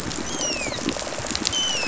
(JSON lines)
{"label": "biophony, dolphin", "recorder": "SoundTrap 500"}
{"label": "biophony", "recorder": "SoundTrap 500"}